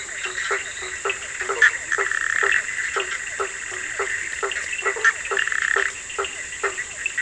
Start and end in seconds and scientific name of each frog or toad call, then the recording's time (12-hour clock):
0.0	1.0	Boana leptolineata
0.0	7.2	Boana bischoffi
0.0	7.2	Boana faber
0.0	7.2	Sphaenorhynchus surdus
1.9	2.6	Boana prasina
5.3	6.0	Boana prasina
10:30pm